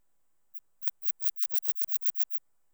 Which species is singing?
Phaneroptera falcata